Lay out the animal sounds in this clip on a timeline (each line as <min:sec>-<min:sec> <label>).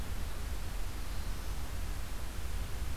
0:00.4-0:01.8 Black-throated Blue Warbler (Setophaga caerulescens)